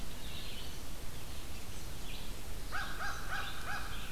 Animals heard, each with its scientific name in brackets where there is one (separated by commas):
American Crow (Corvus brachyrhynchos), Red-eyed Vireo (Vireo olivaceus)